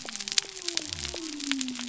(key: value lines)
label: biophony
recorder: SoundTrap 300